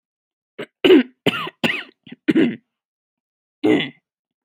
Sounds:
Throat clearing